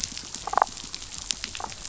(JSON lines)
{"label": "biophony, damselfish", "recorder": "SoundTrap 500"}